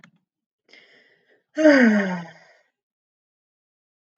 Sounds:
Sigh